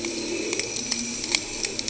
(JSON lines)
{"label": "anthrophony, boat engine", "recorder": "HydroMoth"}